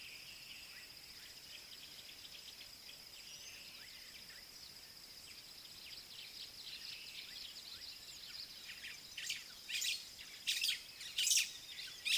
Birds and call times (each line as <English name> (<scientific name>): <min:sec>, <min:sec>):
Red-faced Crombec (Sylvietta whytii): 0:06.7
White-browed Sparrow-Weaver (Plocepasser mahali): 0:10.6